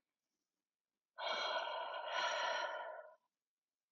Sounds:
Sigh